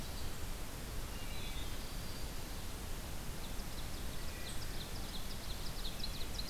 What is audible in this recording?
Wood Thrush, Ovenbird